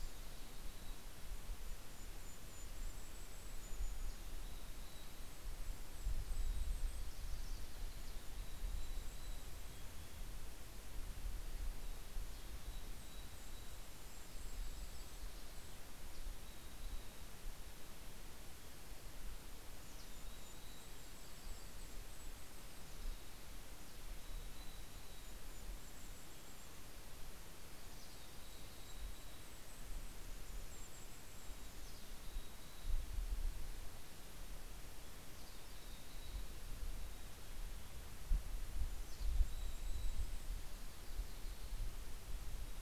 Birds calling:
Golden-crowned Kinglet (Regulus satrapa)
Mountain Chickadee (Poecile gambeli)
Yellow-rumped Warbler (Setophaga coronata)

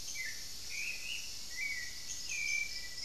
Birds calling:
Black-faced Antthrush (Formicarius analis)
Hauxwell's Thrush (Turdus hauxwelli)

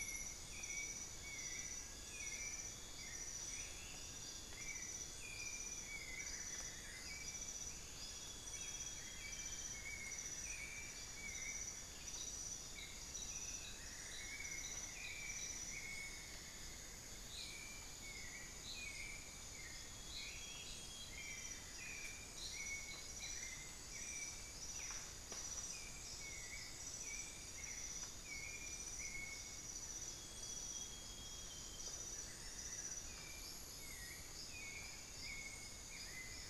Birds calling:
Amazonian Grosbeak (Cyanoloxia rothschildii)
Amazonian Barred-Woodcreeper (Dendrocolaptes certhia)
Cinnamon-throated Woodcreeper (Dendrexetastes rufigula)
White-necked Thrush (Turdus albicollis)
Western Striolated-Puffbird (Nystalus obamai)

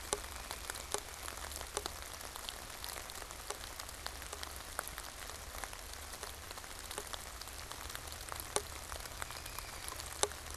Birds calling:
American Robin (Turdus migratorius)

